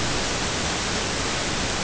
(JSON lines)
{"label": "ambient", "recorder": "HydroMoth"}